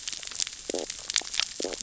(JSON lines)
{"label": "biophony, stridulation", "recorder": "SoundTrap 600 or HydroMoth"}